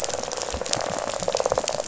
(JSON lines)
{"label": "biophony, rattle", "recorder": "SoundTrap 500"}